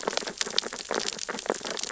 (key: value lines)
label: biophony, sea urchins (Echinidae)
recorder: SoundTrap 600 or HydroMoth